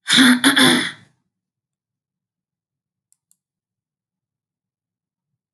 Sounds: Throat clearing